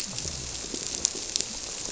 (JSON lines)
{"label": "biophony", "recorder": "SoundTrap 300"}